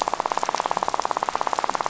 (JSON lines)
{"label": "biophony, rattle", "recorder": "SoundTrap 500"}